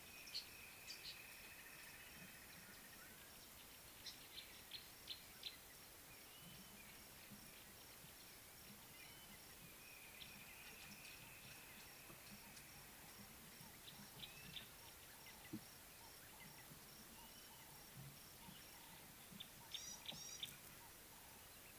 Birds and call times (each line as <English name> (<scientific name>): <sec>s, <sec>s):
Green Woodhoopoe (Phoeniculus purpureus): 1.8s
Gray-backed Camaroptera (Camaroptera brevicaudata): 4.7s